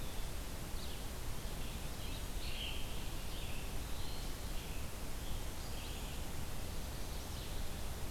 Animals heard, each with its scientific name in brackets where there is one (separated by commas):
Red-eyed Vireo (Vireo olivaceus), Eastern Wood-Pewee (Contopus virens)